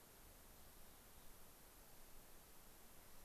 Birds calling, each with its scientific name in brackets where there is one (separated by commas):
Mountain Chickadee (Poecile gambeli)